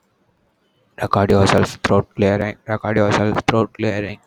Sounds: Throat clearing